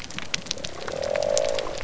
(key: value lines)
label: biophony
recorder: SoundTrap 300